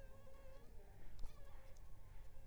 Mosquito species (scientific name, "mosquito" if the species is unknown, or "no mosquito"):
Anopheles funestus s.l.